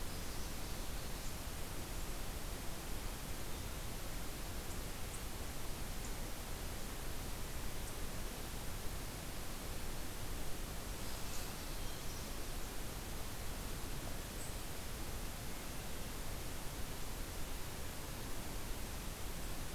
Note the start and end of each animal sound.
[10.92, 12.29] Canada Warbler (Cardellina canadensis)

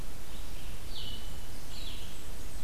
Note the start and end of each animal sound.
[0.00, 2.63] Blue-headed Vireo (Vireo solitarius)
[0.00, 2.63] Red-eyed Vireo (Vireo olivaceus)
[0.92, 2.63] Blackburnian Warbler (Setophaga fusca)

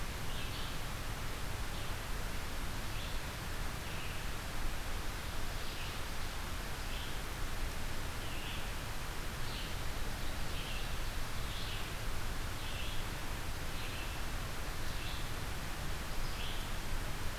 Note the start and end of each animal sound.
[0.00, 16.66] Red-eyed Vireo (Vireo olivaceus)

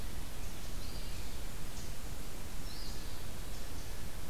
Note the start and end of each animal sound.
[0.69, 1.48] Eastern Phoebe (Sayornis phoebe)
[2.48, 3.33] Eastern Phoebe (Sayornis phoebe)

